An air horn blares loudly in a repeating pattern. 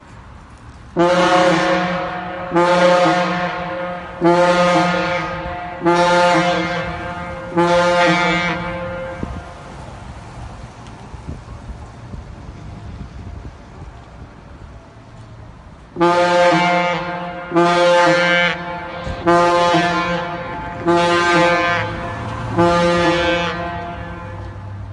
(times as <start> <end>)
0.9 9.3, 15.8 24.4